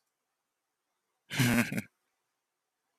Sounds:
Laughter